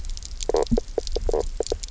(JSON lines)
{"label": "biophony, knock croak", "recorder": "SoundTrap 300"}